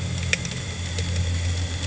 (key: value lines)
label: anthrophony, boat engine
recorder: HydroMoth